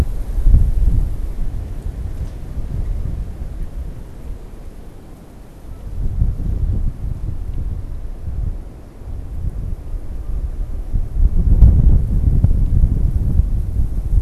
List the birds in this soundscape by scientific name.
Branta canadensis